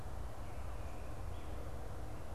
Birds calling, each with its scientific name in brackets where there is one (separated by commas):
American Robin (Turdus migratorius)